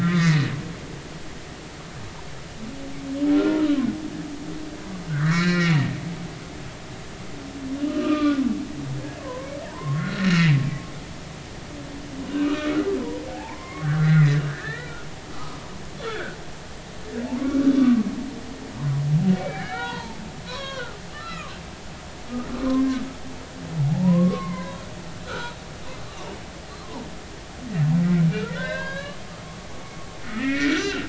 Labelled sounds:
0.0	0.5	humpback whale, 1.1 to 2.3 kHz
3.4	3.9	humpback whale, 0.99 to 1.5 kHz
5.1	5.8	humpback whale, 1.2 to 5.3 kHz
7.8	8.4	humpback whale, 1.1 to 3.1 kHz
9.2	11.1	humpback whale, 0.83 to 4.3 kHz
12.4	14.9	humpback whale, 0.80 to 2.6 kHz
15.3	16.4	humpback whale, 1.2 to 3.6 kHz
17.2	18.1	humpback whale, 0.83 to 1.5 kHz
19.4	21.5	humpback whale, 0.80 to 4.4 kHz
23.9	24.8	humpback whale, 0.80 to 2.2 kHz
25.2	25.6	humpback whale, 1.2 to 1.6 kHz
28.3	29.9	humpback whale, 0.90 to 4.9 kHz
30.2	31.0	humpback whale, 1.3 to 7.3 kHz

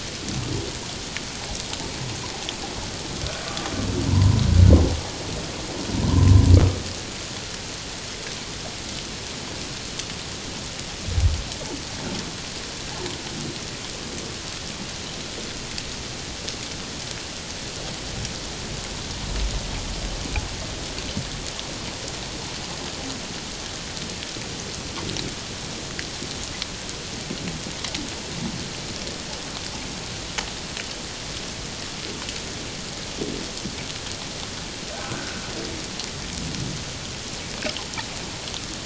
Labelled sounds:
3.4	4.4	humpback whale, 0.91 to 1.3 kHz
6.1	6.5	humpback whale, 0.91 to 1.1 kHz
34.9	35.3	humpback whale, 1.4 to 1.6 kHz

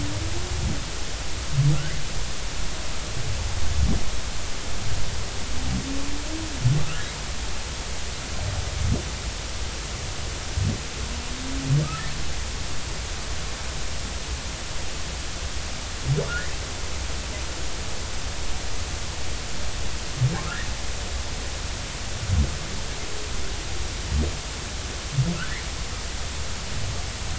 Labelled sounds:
6.8	7.0	humpback whale, 1.1 to 1.5 kHz

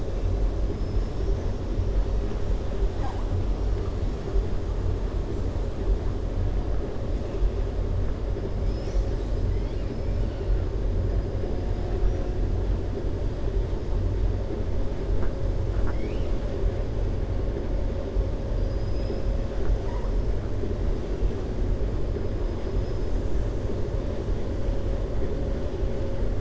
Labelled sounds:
0.7	1.5	killer whale, 5.2 to 6.4 kHz
15.6	16.3	killer whale, 0.84 to 6.2 kHz
22.5	23.5	killer whale, 5.1 to 7.5 kHz

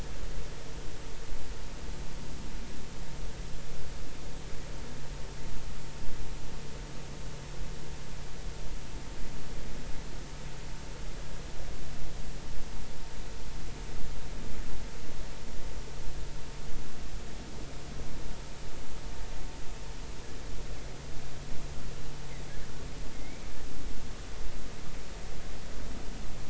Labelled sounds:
23.1	23.5	killer whale, offshore, 2.0 to 2.4 kHz

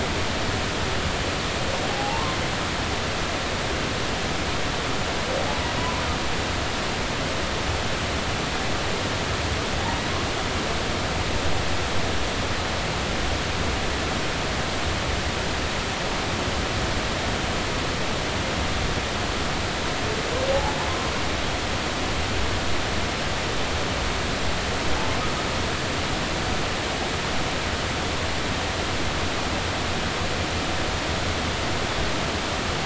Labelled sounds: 1.9	2.4	humpback whale, 0.80 to 1.1 kHz
5.8	6.0	humpback whale, 0.90 to 1.1 kHz
20.5	20.8	humpback whale, 0.80 to 0.93 kHz

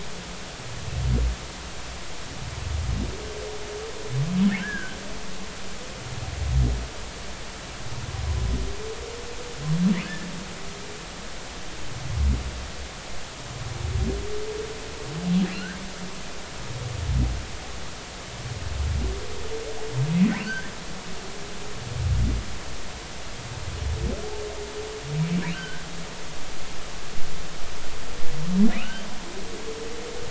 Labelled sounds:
4.6	5.0	humpback whale, 1.4 to 1.8 kHz
10.0	10.3	humpback whale, 1.6 to 1.8 kHz
15.5	15.8	humpback whale, 1.3 to 1.9 kHz
20.4	20.7	humpback whale, 1.4 to 3.2 kHz
25.5	25.8	humpback whale, 1.4 to 1.6 kHz
28.7	29.0	humpback whale, 1.2 to 3.2 kHz

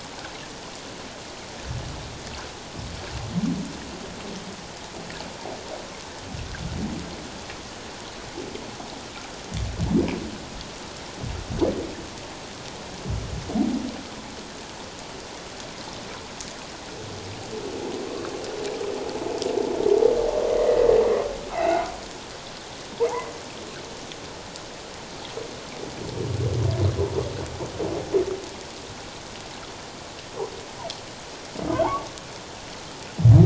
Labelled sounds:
20.6	20.9	humpback whale, 1.8 to 2.1 kHz
21.5	21.8	humpback whale, 1.8 to 2.8 kHz
23.0	23.3	humpback whale, 1.9 to 2.2 kHz

